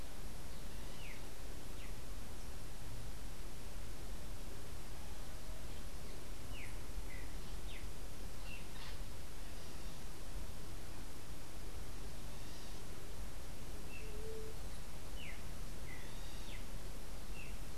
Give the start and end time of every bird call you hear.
0.7s-2.0s: Streaked Saltator (Saltator striatipectus)
6.4s-8.6s: Streaked Saltator (Saltator striatipectus)
8.5s-9.1s: Bronze-winged Parrot (Pionus chalcopterus)
13.7s-17.7s: Streaked Saltator (Saltator striatipectus)
14.0s-14.5s: White-tipped Dove (Leptotila verreauxi)

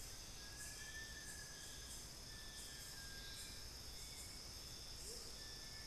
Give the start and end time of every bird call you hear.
0.0s-5.9s: Little Tinamou (Crypturellus soui)
2.2s-2.7s: Cinereous Tinamou (Crypturellus cinereus)
4.9s-5.5s: Amazonian Motmot (Momotus momota)

